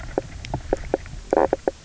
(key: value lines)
label: biophony, knock croak
recorder: SoundTrap 300